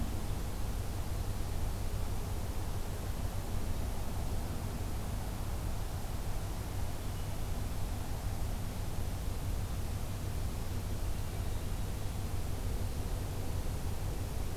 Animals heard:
forest ambience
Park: Acadia National Park